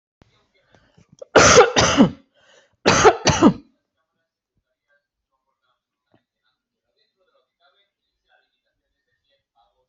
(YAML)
expert_labels:
- quality: good
  cough_type: wet
  dyspnea: false
  wheezing: false
  stridor: false
  choking: false
  congestion: false
  nothing: true
  diagnosis: lower respiratory tract infection
  severity: mild
age: 46
gender: female
respiratory_condition: true
fever_muscle_pain: false
status: symptomatic